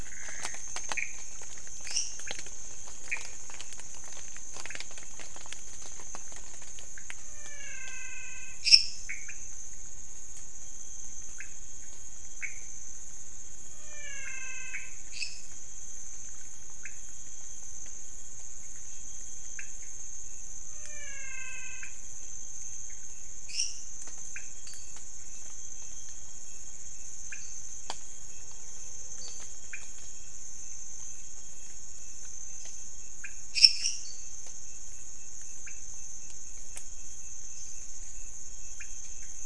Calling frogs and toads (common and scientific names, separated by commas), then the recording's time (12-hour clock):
Pithecopus azureus, lesser tree frog (Dendropsophus minutus), menwig frog (Physalaemus albonotatus), pointedbelly frog (Leptodactylus podicipinus), dwarf tree frog (Dendropsophus nanus)
2:00am